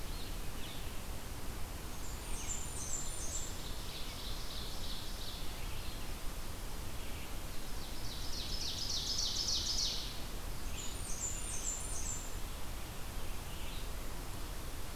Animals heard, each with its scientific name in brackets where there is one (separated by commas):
Ovenbird (Seiurus aurocapilla), Red-eyed Vireo (Vireo olivaceus), Blackburnian Warbler (Setophaga fusca)